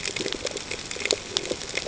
{"label": "ambient", "recorder": "HydroMoth"}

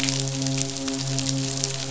{"label": "biophony, midshipman", "recorder": "SoundTrap 500"}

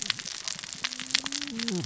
{"label": "biophony, cascading saw", "recorder": "SoundTrap 600 or HydroMoth"}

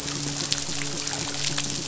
{"label": "biophony", "recorder": "SoundTrap 500"}
{"label": "biophony, midshipman", "recorder": "SoundTrap 500"}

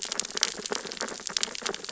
{"label": "biophony, sea urchins (Echinidae)", "recorder": "SoundTrap 600 or HydroMoth"}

